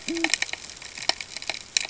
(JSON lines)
{"label": "ambient", "recorder": "HydroMoth"}